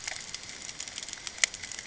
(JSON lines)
{"label": "ambient", "recorder": "HydroMoth"}